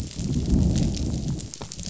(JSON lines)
{"label": "biophony, growl", "recorder": "SoundTrap 500"}